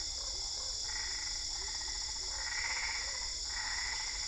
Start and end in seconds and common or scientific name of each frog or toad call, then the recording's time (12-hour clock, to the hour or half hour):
0.0	3.2	Physalaemus cuvieri
0.0	4.2	Boana albopunctata
10:30pm